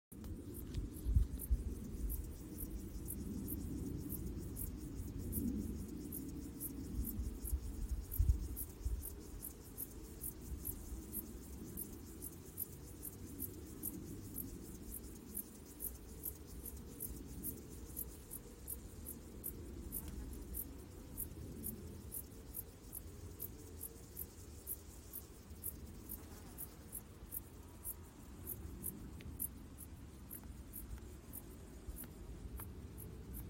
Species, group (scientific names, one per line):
Chorthippus apricarius
Orthoptera